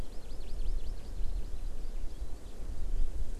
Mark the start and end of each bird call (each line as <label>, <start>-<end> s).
Hawaii Amakihi (Chlorodrepanis virens), 0.0-2.2 s